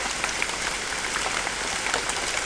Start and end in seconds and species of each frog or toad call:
none
5:15am

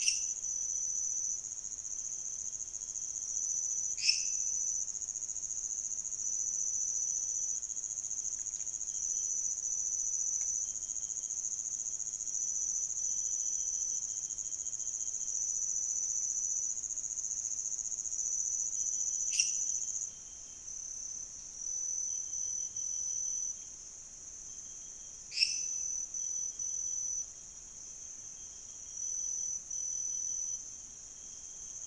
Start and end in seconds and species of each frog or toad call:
0.0	0.4	Dendropsophus minutus
3.9	4.5	Dendropsophus minutus
19.2	19.8	Dendropsophus minutus
25.3	25.8	Dendropsophus minutus
3:00am

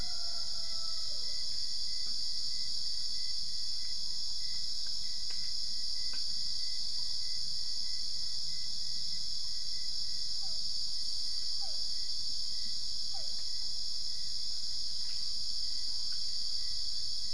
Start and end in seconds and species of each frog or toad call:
10.1	13.8	Physalaemus cuvieri
4:30am

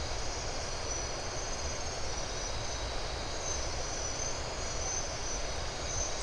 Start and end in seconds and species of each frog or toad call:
none
2:30am

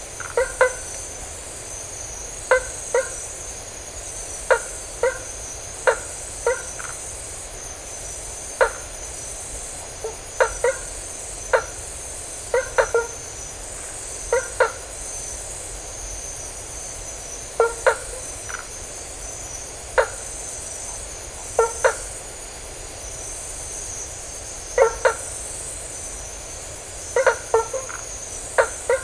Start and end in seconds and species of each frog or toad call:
0.0	15.1	Boana faber
17.2	22.3	Boana faber
24.6	25.7	Boana faber
26.8	29.0	Boana faber
1:30am

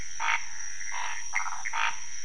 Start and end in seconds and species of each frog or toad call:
0.0	2.0	Scinax fuscovarius
0.0	2.2	Pithecopus azureus
1.3	1.7	Phyllomedusa sauvagii
2:15am

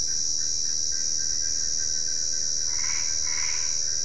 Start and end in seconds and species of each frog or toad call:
2.6	3.8	Boana albopunctata
7:15pm

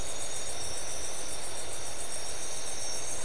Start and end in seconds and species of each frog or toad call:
none
2:30am

